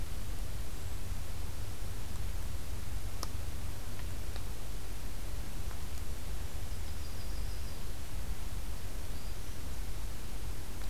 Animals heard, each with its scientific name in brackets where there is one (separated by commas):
Black-throated Green Warbler (Setophaga virens), Yellow-rumped Warbler (Setophaga coronata)